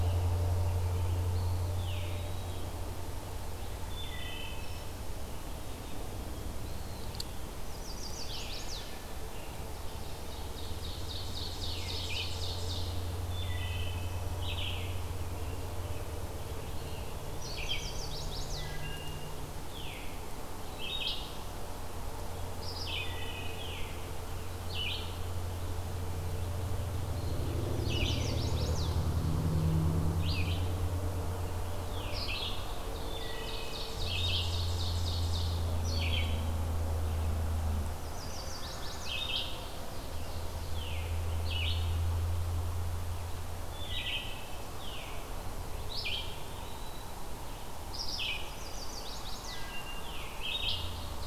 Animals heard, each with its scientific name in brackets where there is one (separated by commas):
Chestnut-sided Warbler (Setophaga pensylvanica), Veery (Catharus fuscescens), Ovenbird (Seiurus aurocapilla), Red-eyed Vireo (Vireo olivaceus), Eastern Wood-Pewee (Contopus virens), Wood Thrush (Hylocichla mustelina)